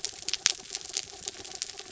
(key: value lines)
label: anthrophony, mechanical
recorder: SoundTrap 300